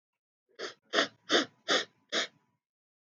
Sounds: Sniff